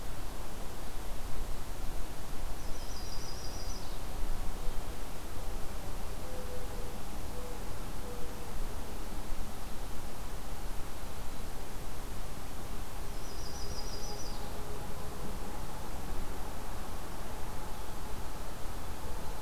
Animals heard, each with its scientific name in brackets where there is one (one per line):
Mourning Dove (Zenaida macroura)
Yellow-rumped Warbler (Setophaga coronata)